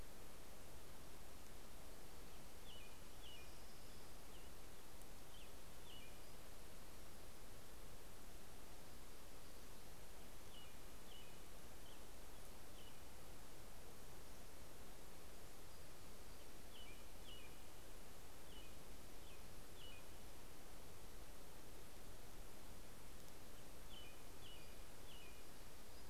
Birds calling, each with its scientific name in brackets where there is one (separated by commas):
American Robin (Turdus migratorius), Pacific-slope Flycatcher (Empidonax difficilis), Orange-crowned Warbler (Leiothlypis celata)